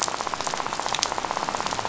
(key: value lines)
label: biophony, rattle
recorder: SoundTrap 500